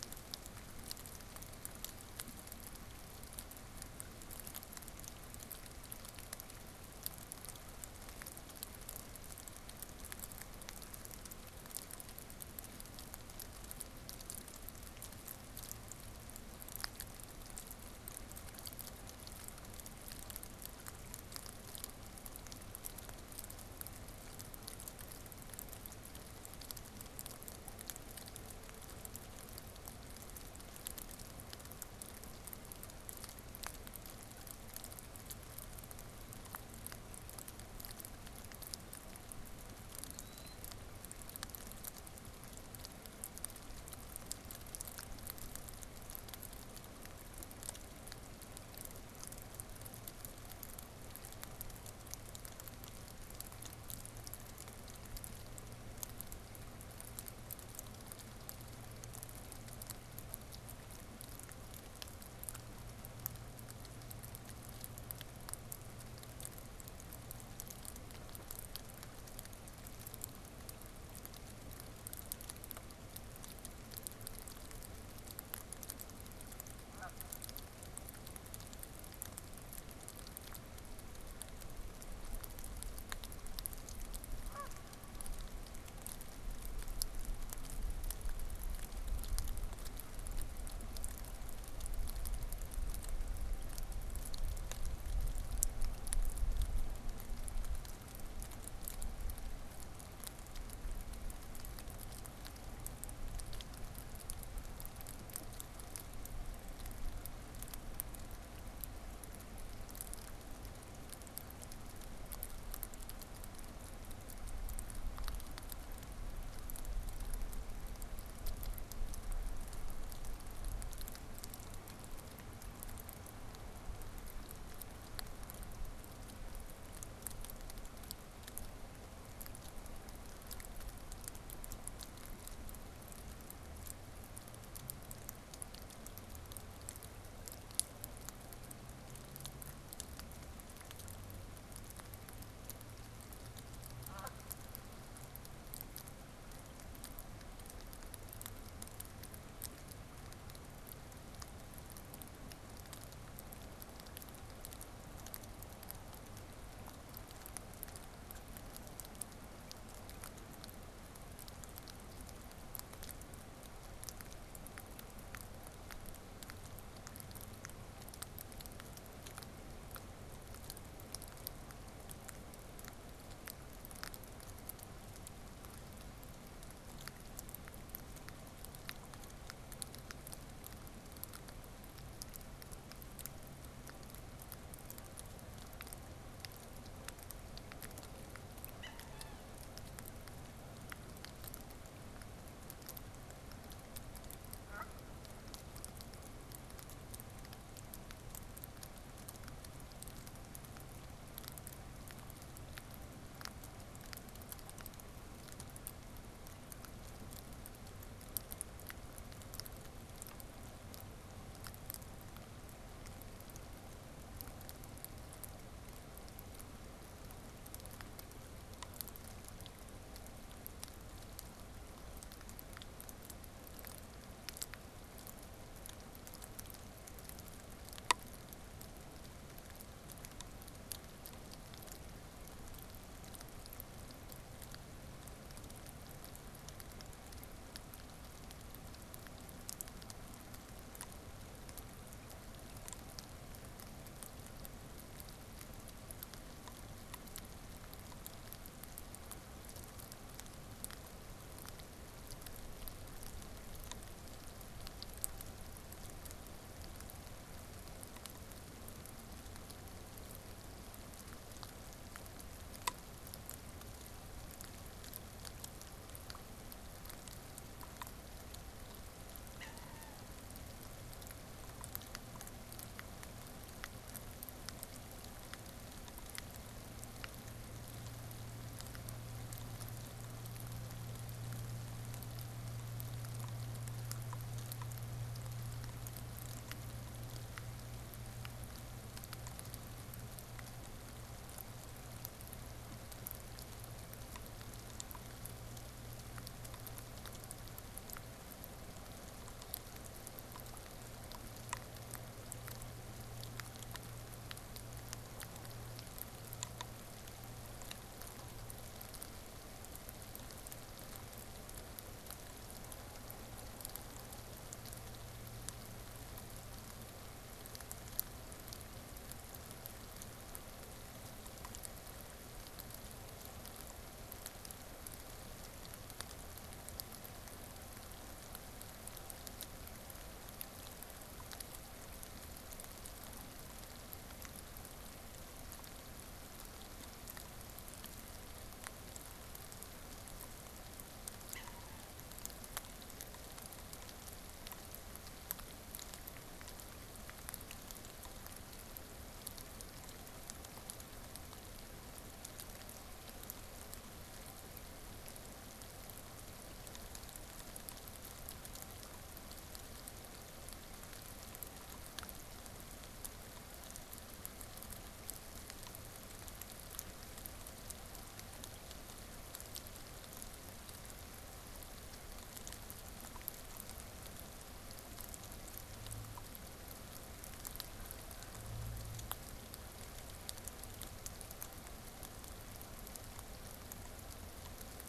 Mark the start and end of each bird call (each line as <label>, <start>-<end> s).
Killdeer (Charadrius vociferus), 40.0-40.8 s
Canada Goose (Branta canadensis), 76.8-77.3 s
Canada Goose (Branta canadensis), 84.4-84.9 s
Canada Goose (Branta canadensis), 143.9-144.4 s
Wood Duck (Aix sponsa), 188.7-189.6 s
Canada Goose (Branta canadensis), 194.5-195.1 s
Wood Duck (Aix sponsa), 269.6-270.4 s
Wood Duck (Aix sponsa), 341.4-342.3 s